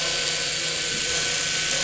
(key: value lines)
label: anthrophony, boat engine
recorder: SoundTrap 500